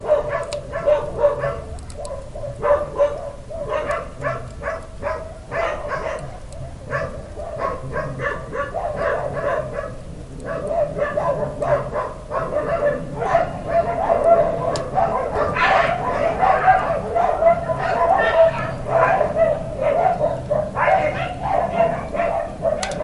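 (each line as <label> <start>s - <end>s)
A group of dogs bark loudly. 0.0s - 23.0s
A fire crackles inside a stove. 1.8s - 2.5s
A fire crackles quietly inside a stove. 4.1s - 5.4s
A fire crackles quietly inside a stove. 6.1s - 6.9s
A muffled voice speaking quietly. 7.2s - 18.7s
A woman shouting a few words inside a house. 17.8s - 18.6s
Two voices shout angrily indoors. 20.7s - 23.0s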